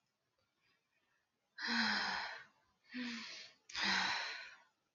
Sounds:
Sigh